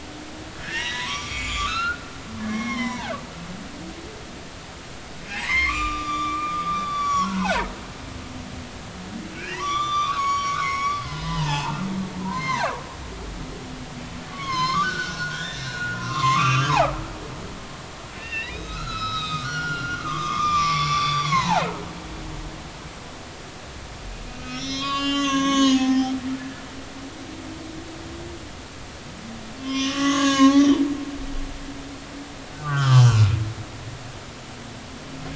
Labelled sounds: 0.6	2.0	humpback whale, 0.93 to 7.3 kHz
2.4	3.1	humpback whale, 0.80 to 6.0 kHz
5.3	7.7	humpback whale, 0.80 to 7.4 kHz
9.3	11.8	humpback whale, 0.80 to 6.8 kHz
12.2	12.8	humpback whale, 0.80 to 4.3 kHz
14.3	16.9	humpback whale, 0.80 to 7.2 kHz
18.1	21.7	humpback whale, 0.80 to 5.8 kHz
24.4	26.1	humpback whale, 0.80 to 7.1 kHz
29.6	30.8	humpback whale, 0.99 to 6.8 kHz
32.5	33.3	humpback whale, 0.83 to 5.3 kHz

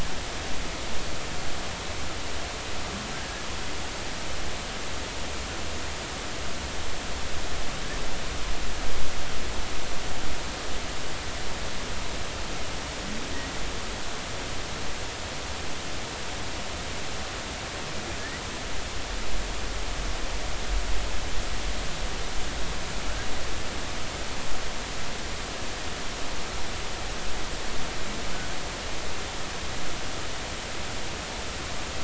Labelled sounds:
3.1	3.5	humpback whale, 1.5 to 1.8 kHz
13.3	13.6	humpback whale, 1.8 to 2.0 kHz

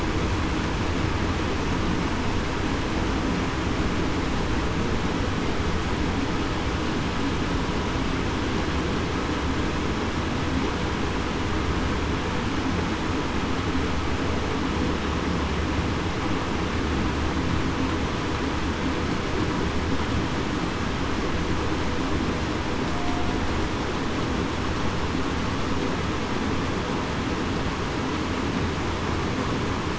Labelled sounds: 22.9	23.3	humpback whale, 0.68 to 0.75 kHz

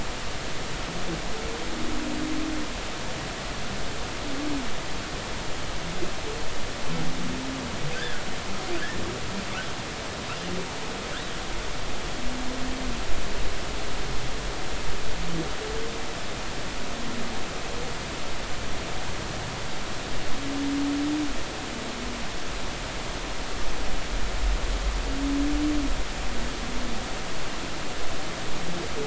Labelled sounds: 7.9	8.3	humpback whale, 1.4 to 1.8 kHz
8.8	9.0	humpback whale, 1.4 to 1.9 kHz

